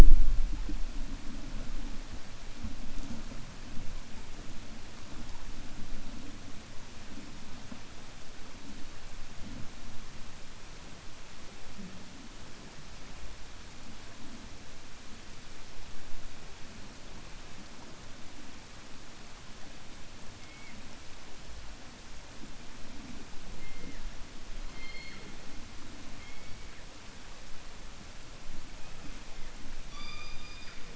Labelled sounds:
29.8	30.8	killer whale, 1.1 to 5.9 kHz

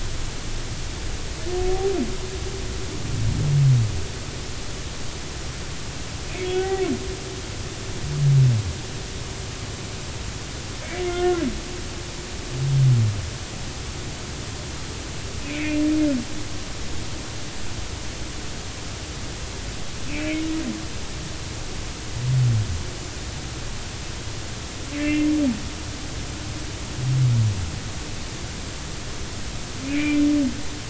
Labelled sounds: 6.5	6.8	humpback whale, 0.80 to 0.83 kHz
11.1	11.4	humpback whale, 0.99 to 1.5 kHz
15.4	15.9	humpback whale, 2.1 to 2.8 kHz
20.1	20.4	humpback whale, 2.1 to 2.7 kHz
24.9	25.3	humpback whale, 2.0 to 2.8 kHz
29.8	30.2	humpback whale, 2.0 to 2.6 kHz

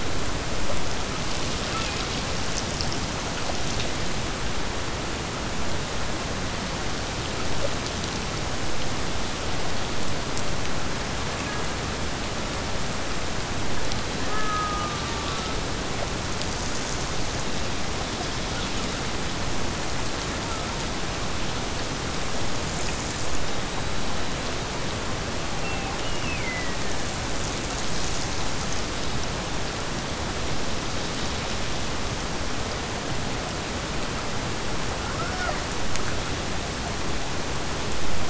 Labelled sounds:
14.2	15.6	killer whale, Bigg's (transient), Gulf of Alaska transient, 0.71 to 1.9 kHz
25.9	27.1	killer whale, Bigg's (transient), Gulf of Alaska transient, 1.5 to 3.3 kHz

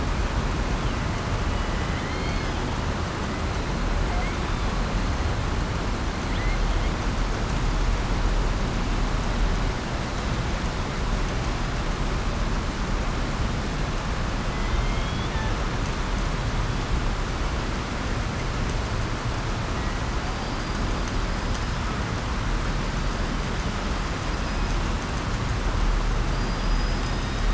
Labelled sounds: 1.5	2.6	killer whale, southern resident, 1.7 to 5.1 kHz
14.5	15.5	killer whale, southern resident, 0.87 to 3.7 kHz
20.3	20.8	killer whale, southern resident, 4.1 to 4.9 kHz

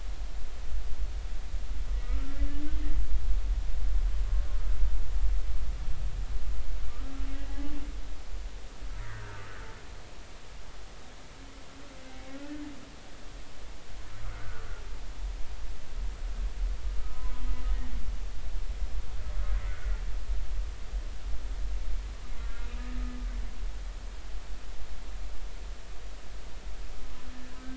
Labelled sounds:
2.0	2.4	humpback whale, 1.2 to 1.4 kHz
7.5	7.7	humpback whale, 0.80 to 0.90 kHz
9.0	9.5	humpback whale, 1.1 to 2.1 kHz
12.1	12.4	humpback whale, 2.1 to 2.3 kHz
14.2	14.7	humpback whale, 1.1 to 1.6 kHz
17.0	17.3	humpback whale, 1.2 to 1.3 kHz
19.7	20.0	humpback whale, 1.3 to 1.5 kHz
22.3	22.9	humpback whale, 1.3 to 2.8 kHz

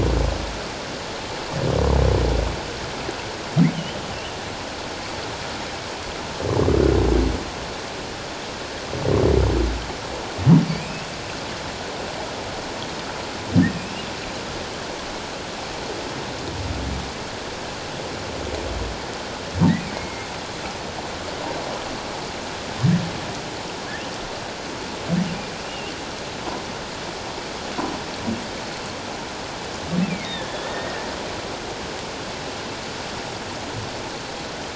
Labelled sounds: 3.7	4.0	humpback whale, 2.8 to 3.2 kHz
10.7	11.1	humpback whale, 2.2 to 2.8 kHz
19.9	20.3	humpback whale, 2.1 to 2.2 kHz
25.6	25.9	humpback whale, 2.7 to 3.0 kHz
30.3	31.1	humpback whale, 1.7 to 2.0 kHz

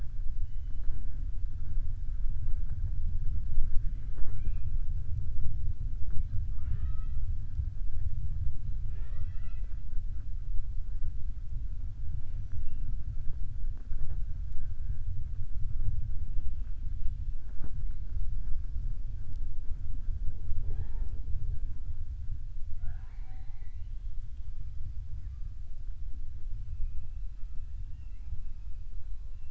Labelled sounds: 8.8	9.8	killer whale, southern resident, 0.42 to 5.6 kHz

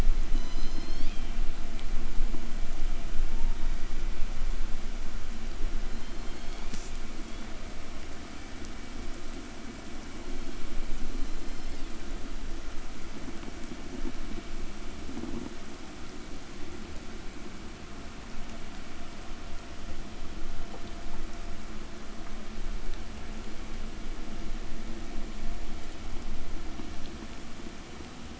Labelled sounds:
0.1	1.6	killer whale, southern resident, call S01, 0.87 to 8.0 kHz
5.6	7.7	killer whale, southern resident, call S01, 1.6 to 8.0 kHz
10.8	12.4	killer whale, southern resident, call S01, 1.5 to 8.0 kHz

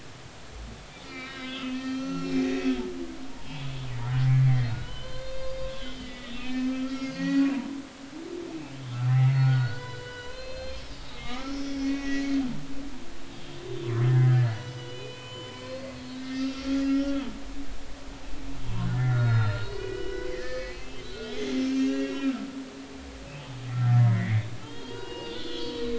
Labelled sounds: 1.0	2.8	humpback whale, 1.2 to 6.0 kHz
3.3	3.9	humpback whale, 0.83 to 3.6 kHz
4.3	7.5	humpback whale, 0.99 to 6.4 kHz
8.0	12.3	humpback whale, 0.93 to 5.4 kHz
13.3	17.3	humpback whale, 0.96 to 7.1 kHz
18.6	22.4	humpback whale, 0.86 to 5.8 kHz
23.7	25.9	humpback whale, 0.83 to 4.8 kHz

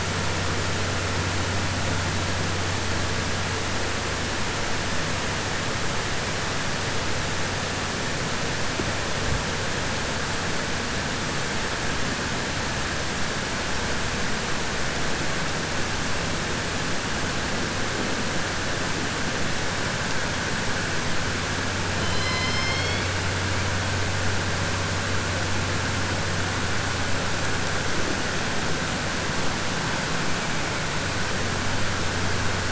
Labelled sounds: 21.9	23.1	killer whale, southern resident, 2.0 to 5.6 kHz

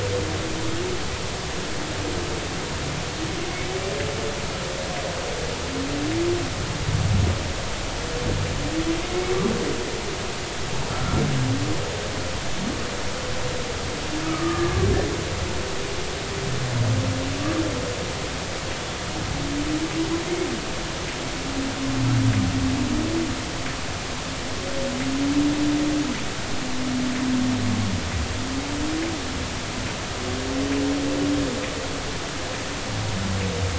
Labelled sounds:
10.9	11.2	humpback whale, 1.3 to 1.4 kHz
14.3	14.8	humpback whale, 1.1 to 1.9 kHz

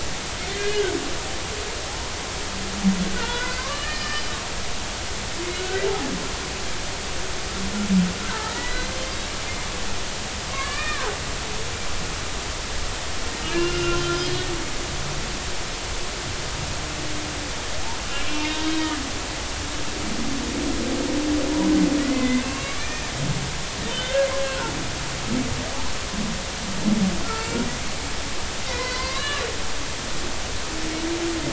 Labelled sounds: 0.5	0.9	humpback whale, 1.4 to 2.1 kHz
3.1	4.3	humpback whale, 0.86 to 4.9 kHz
5.6	5.9	humpback whale, 1.4 to 1.6 kHz
8.3	8.9	humpback whale, 1.7 to 4.1 kHz
10.5	11.1	humpback whale, 0.80 to 2.5 kHz
13.5	14.5	humpback whale, 1.3 to 3.4 kHz
18.2	19.0	humpback whale, 2.2 to 3.9 kHz
22.0	23.1	humpback whale, 1.1 to 2.8 kHz
23.8	24.3	humpback whale, 1.5 to 3.7 kHz
28.7	29.5	humpback whale, 0.96 to 4.3 kHz

